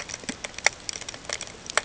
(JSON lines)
{"label": "ambient", "recorder": "HydroMoth"}